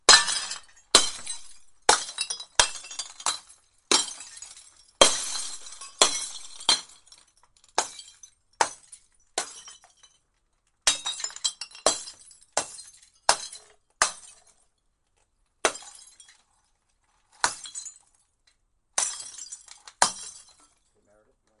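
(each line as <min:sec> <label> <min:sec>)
0:00.0 Glass bottles are being broken continuously outside. 0:21.6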